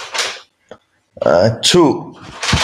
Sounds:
Sneeze